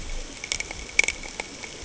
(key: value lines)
label: ambient
recorder: HydroMoth